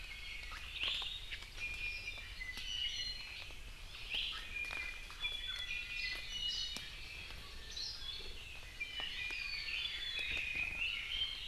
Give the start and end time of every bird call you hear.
[1.60, 3.40] Iiwi (Drepanis coccinea)
[4.10, 6.80] Iiwi (Drepanis coccinea)
[8.60, 11.40] Red-billed Leiothrix (Leiothrix lutea)

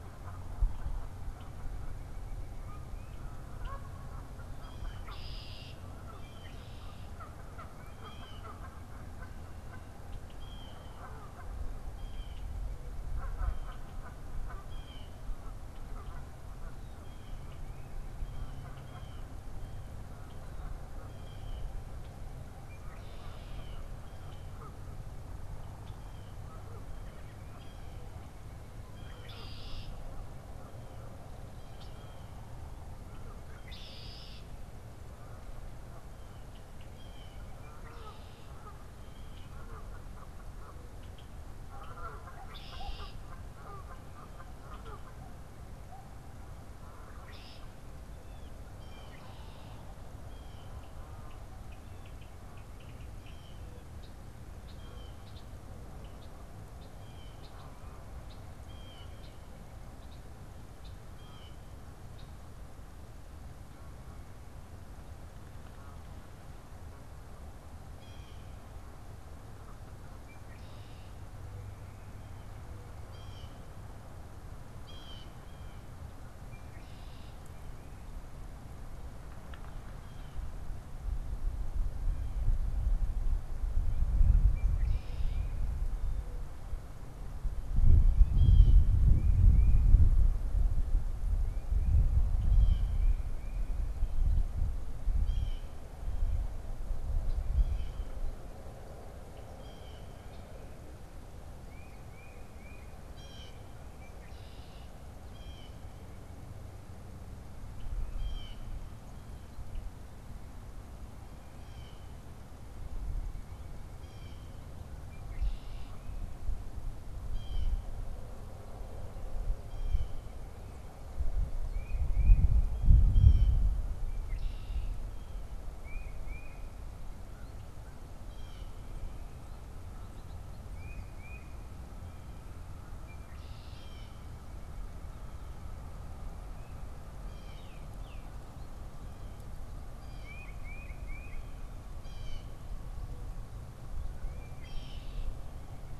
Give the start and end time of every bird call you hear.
[4.40, 39.60] Blue Jay (Cyanocitta cristata)
[4.80, 5.80] Red-winged Blackbird (Agelaius phoeniceus)
[22.60, 24.10] Red-winged Blackbird (Agelaius phoeniceus)
[28.90, 30.10] Red-winged Blackbird (Agelaius phoeniceus)
[33.30, 34.60] Red-winged Blackbird (Agelaius phoeniceus)
[37.50, 38.60] Red-winged Blackbird (Agelaius phoeniceus)
[40.80, 43.40] Red-winged Blackbird (Agelaius phoeniceus)
[44.50, 62.50] Red-winged Blackbird (Agelaius phoeniceus)
[48.00, 61.70] Blue Jay (Cyanocitta cristata)
[67.60, 75.90] Blue Jay (Cyanocitta cristata)
[70.10, 71.30] Red-winged Blackbird (Agelaius phoeniceus)
[76.30, 77.60] Red-winged Blackbird (Agelaius phoeniceus)
[79.90, 80.50] Blue Jay (Cyanocitta cristata)
[84.50, 85.70] Red-winged Blackbird (Agelaius phoeniceus)
[87.80, 120.10] Blue Jay (Cyanocitta cristata)
[101.40, 103.10] Tufted Titmouse (Baeolophus bicolor)
[121.50, 126.80] Tufted Titmouse (Baeolophus bicolor)
[122.80, 123.70] Blue Jay (Cyanocitta cristata)
[124.00, 125.10] Red-winged Blackbird (Agelaius phoeniceus)
[128.00, 128.80] Blue Jay (Cyanocitta cristata)
[130.60, 131.60] Tufted Titmouse (Baeolophus bicolor)
[132.90, 134.40] Red-winged Blackbird (Agelaius phoeniceus)
[137.10, 146.00] Blue Jay (Cyanocitta cristata)
[137.60, 138.30] unidentified bird
[140.10, 141.50] Tufted Titmouse (Baeolophus bicolor)

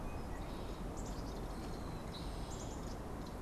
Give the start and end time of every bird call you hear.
[0.00, 3.41] unidentified bird
[0.78, 3.41] Black-capped Chickadee (Poecile atricapillus)

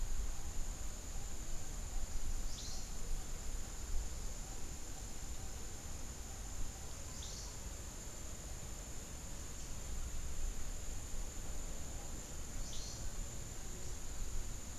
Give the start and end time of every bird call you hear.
[2.40, 3.00] Cabanis's Wren (Cantorchilus modestus)
[7.00, 7.50] Cabanis's Wren (Cantorchilus modestus)
[12.60, 13.10] Cabanis's Wren (Cantorchilus modestus)

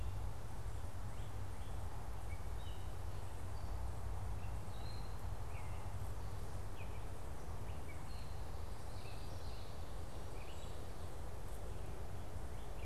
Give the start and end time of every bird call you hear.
[0.00, 8.36] Gray Catbird (Dumetella carolinensis)
[8.76, 9.86] Common Yellowthroat (Geothlypis trichas)

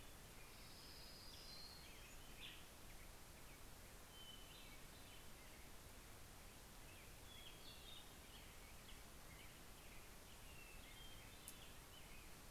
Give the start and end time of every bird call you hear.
[0.00, 2.40] Orange-crowned Warbler (Leiothlypis celata)
[1.50, 3.00] Hermit Thrush (Catharus guttatus)
[3.70, 5.90] Hermit Thrush (Catharus guttatus)
[7.20, 9.00] Hermit Thrush (Catharus guttatus)
[10.20, 11.70] Hermit Thrush (Catharus guttatus)

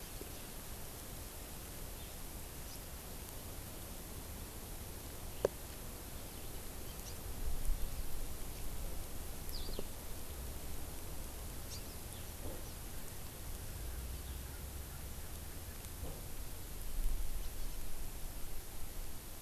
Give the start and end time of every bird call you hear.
[9.50, 9.80] Eurasian Skylark (Alauda arvensis)
[11.70, 11.80] Hawaii Amakihi (Chlorodrepanis virens)

